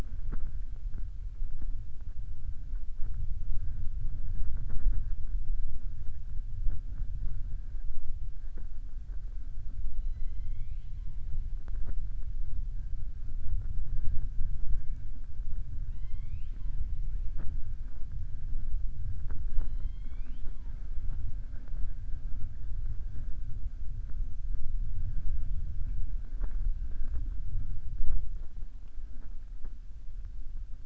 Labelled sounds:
9.9	11.1	killer whale, southern resident, 2.0 to 4.2 kHz
15.8	16.8	killer whale, southern resident, 0.98 to 5.3 kHz

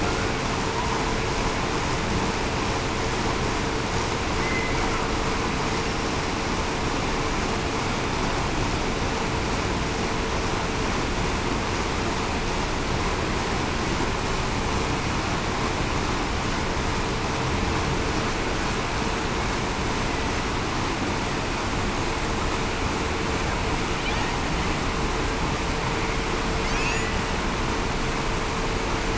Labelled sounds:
4.4	4.7	killer whale, Bigg's (transient), 2.0 to 2.1 kHz

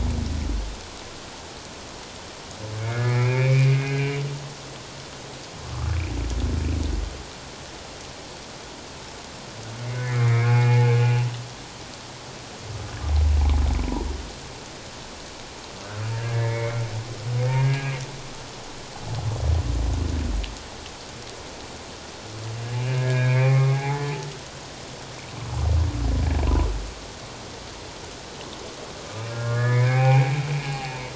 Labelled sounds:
2.8	4.1	humpback whale, 1.5 to 2.6 kHz
9.9	10.9	humpback whale, 0.81 to 2.6 kHz
16.1	16.8	humpback whale, 1.6 to 2.3 kHz
17.6	18.0	humpback whale, 1.6 to 2.6 kHz
22.8	24.2	humpback whale, 0.78 to 2.6 kHz
29.3	30.3	humpback whale, 0.78 to 2.6 kHz
30.6	30.9	humpback whale, 0.78 to 2.9 kHz

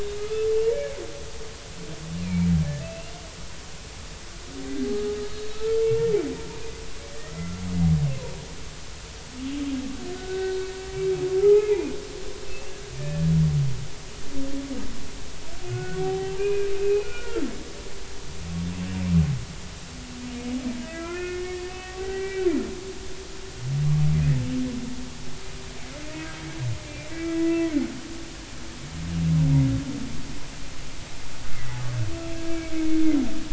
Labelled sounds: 0.2	1.0	humpback whale, 1.2 to 2.3 kHz
2.2	3.1	humpback whale, 2.2 to 2.8 kHz
4.7	5.8	humpback whale, 1.2 to 3.9 kHz
7.1	7.5	humpback whale, 1.8 to 2.1 kHz
10.1	10.6	humpback whale, 1.4 to 1.6 kHz
11.4	11.9	humpback whale, 0.80 to 2.7 kHz
12.5	13.3	humpback whale, 1.7 to 2.8 kHz
15.7	17.4	humpback whale, 0.80 to 3.1 kHz
20.8	22.5	humpback whale, 0.80 to 2.6 kHz
27.1	27.6	humpback whale, 1.9 to 2.0 kHz
31.5	31.8	humpback whale, 1.9 to 2.1 kHz
32.5	32.9	humpback whale, 2.1 to 2.4 kHz

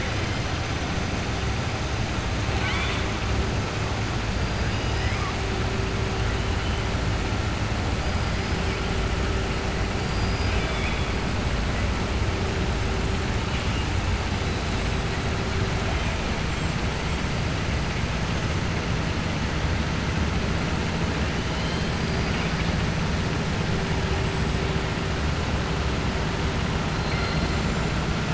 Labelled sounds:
2.5	3.0	killer whale, southern resident, 0.85 to 5.2 kHz
10.0	11.1	killer whale, southern resident, 1.6 to 5.0 kHz

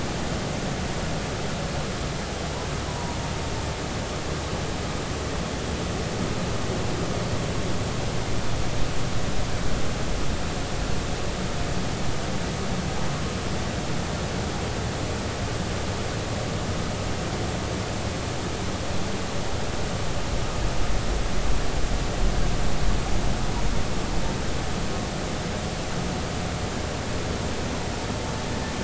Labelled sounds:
2.9	3.2	humpback whale, 0.90 to 1.1 kHz

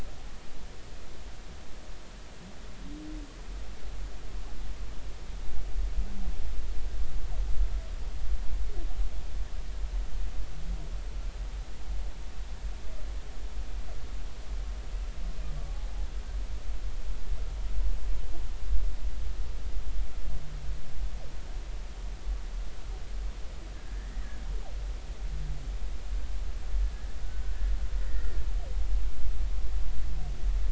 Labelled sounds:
23.7	24.1	humpback whale, 1.6 to 1.9 kHz

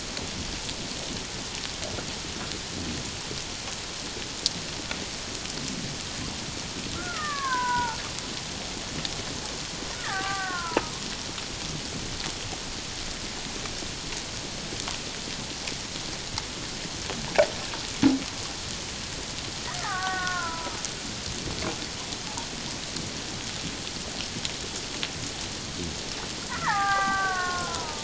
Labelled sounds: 7.0	8.0	killer whale, Bigg's (transient), 0.84 to 2.0 kHz
9.9	10.9	killer whale, Bigg's (transient), 0.78 to 2.0 kHz
19.8	20.8	killer whale, Bigg's (transient), 0.78 to 1.9 kHz
26.5	28.0	killer whale, Bigg's (transient), 0.78 to 2.1 kHz

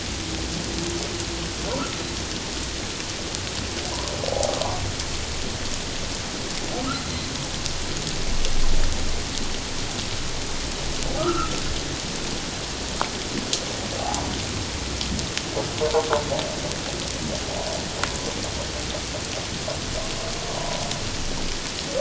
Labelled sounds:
1.8	2.0	humpback whale, 1.2 to 1.5 kHz
4.3	4.6	humpback whale, 0.78 to 0.88 kHz
11.2	11.6	humpback whale, 1.1 to 1.5 kHz
14.0	14.3	humpback whale, 0.78 to 1.0 kHz

